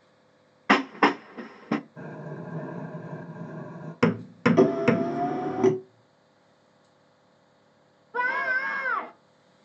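First, a train is audible. Then there is quiet wind. After that, the sound of a hammer is heard. Over it, you can hear a car. Later, someone screams.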